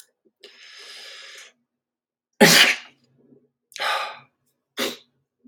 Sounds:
Sneeze